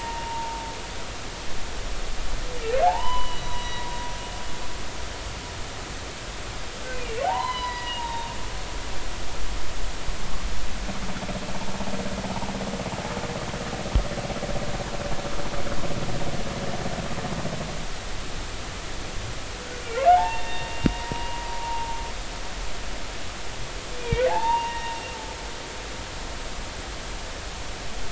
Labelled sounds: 0.3	0.5	humpback whale, 0.83 to 0.93 kHz
2.8	3.9	humpback whale, 0.80 to 5.9 kHz
7.2	8.3	humpback whale, 0.80 to 4.1 kHz
20.1	21.9	humpback whale, 0.80 to 3.8 kHz
24.0	25.0	humpback whale, 0.80 to 2.8 kHz

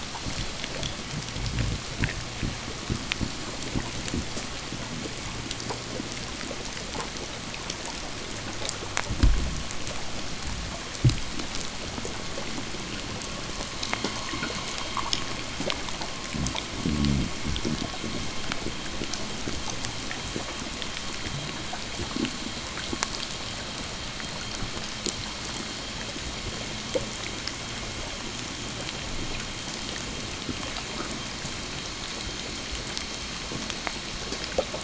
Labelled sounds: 12.6	34.8	vessel noise, 0 to 7.9 kHz

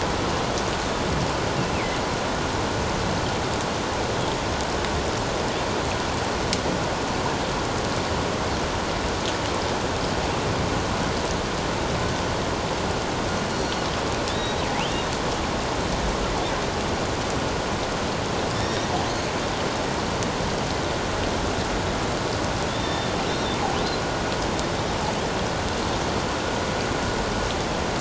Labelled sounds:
13.5	13.8	killer whale, northern resident, G clan, 4.2 to 5.8 kHz
14.3	14.6	killer whale, northern resident, G clan, 3.7 to 3.9 kHz
18.5	18.9	killer whale, northern resident, G clan, 3.5 to 5.6 kHz
22.7	23.1	killer whale, northern resident, G clan, 3.3 to 3.7 kHz

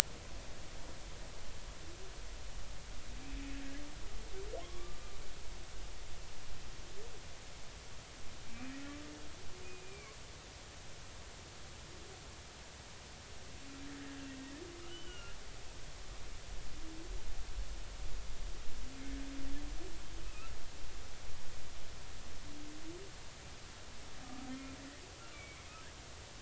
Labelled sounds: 4.6	5.2	humpback whale, 0.99 to 1.2 kHz
8.5	8.7	humpback whale, 2.3 to 2.7 kHz
9.6	10.1	humpback whale, 2.1 to 2.5 kHz
14.9	15.4	humpback whale, 1.3 to 3.1 kHz
20.2	20.5	humpback whale, 2.4 to 2.7 kHz
24.2	24.5	humpback whale, 1.2 to 1.3 kHz
25.3	25.6	humpback whale, 2.2 to 2.4 kHz

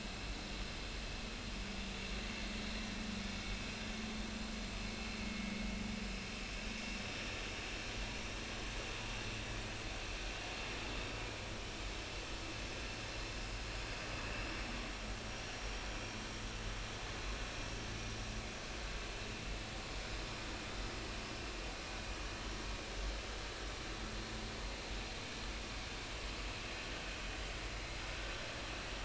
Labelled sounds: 15.3	15.7	vessel noise, 5.6 to 5.8 kHz

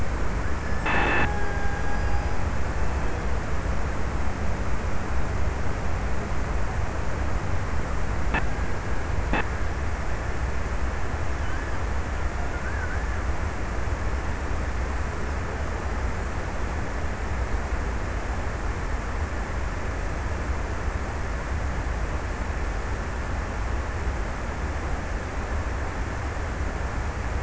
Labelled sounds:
0.1	3.6	killer whale, Bigg's (transient), 0.63 to 1.9 kHz

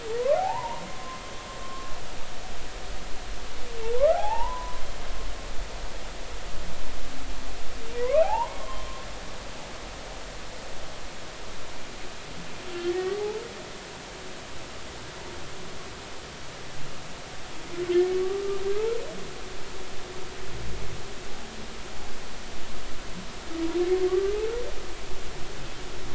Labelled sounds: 0.4	1.2	humpback whale, 0.80 to 1.1 kHz
1.6	1.9	humpback whale, 1.0 to 1.1 kHz
3.8	4.8	humpback whale, 0.80 to 1.5 kHz
5.2	5.5	humpback whale, 2.4 to 2.9 kHz
8.0	8.9	humpback whale, 0.80 to 3.2 kHz
12.8	13.4	humpback whale, 0.80 to 2.1 kHz
18.1	18.4	humpback whale, 1.1 to 1.2 kHz
24.1	24.4	humpback whale, 1.1 to 1.2 kHz

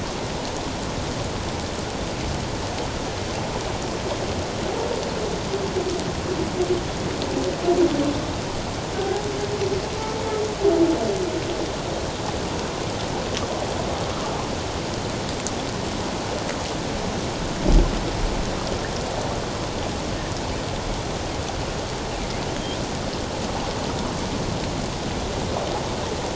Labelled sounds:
9.0	9.2	humpback whale, 0.78 to 0.88 kHz

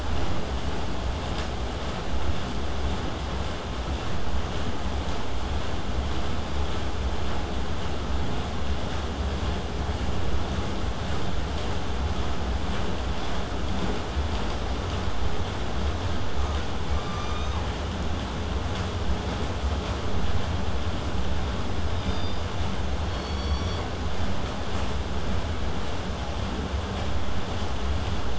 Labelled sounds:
0.0	5.0	vessel noise, 0 to 8.0 kHz
21.9	22.4	killer whale, southern resident, 3.1 to 5.1 kHz

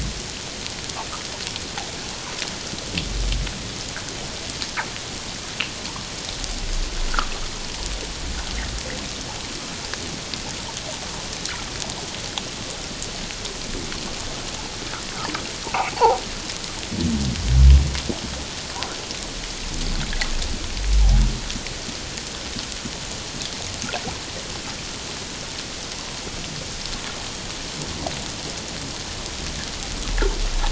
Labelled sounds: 15.7	16.2	fish, 0.78 to 1.1 kHz

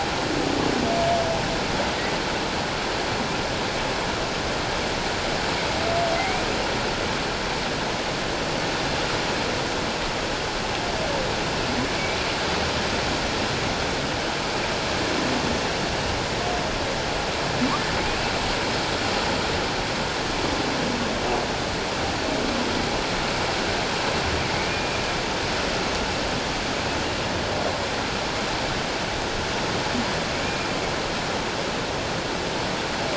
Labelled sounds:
6.2	6.4	humpback whale, 2.0 to 2.5 kHz

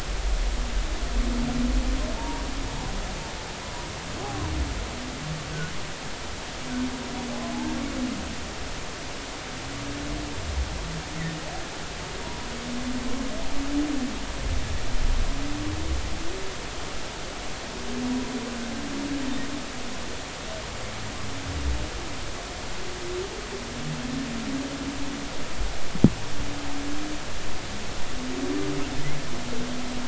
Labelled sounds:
2.2	2.5	humpback whale, 0.86 to 0.99 kHz
3.6	3.9	humpback whale, 0.93 to 1.0 kHz
12.2	12.5	humpback whale, 0.93 to 1.0 kHz

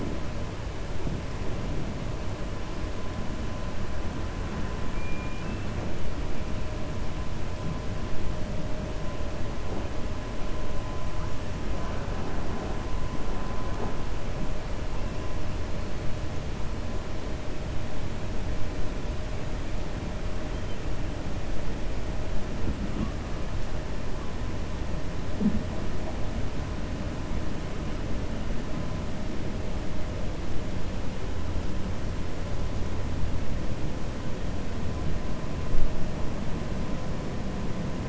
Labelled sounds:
4.9	5.6	killer whale, 1.5 to 3.0 kHz

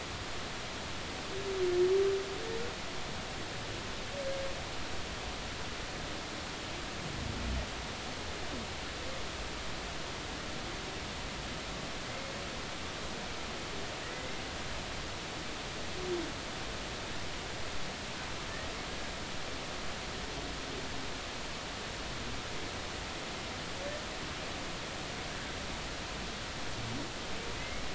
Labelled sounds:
12.1	12.3	humpback whale, 2.0 to 2.2 kHz
14.0	14.4	humpback whale, 1.8 to 2.1 kHz
27.6	27.8	humpback whale, 2.0 to 2.2 kHz

